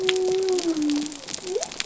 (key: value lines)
label: biophony
recorder: SoundTrap 300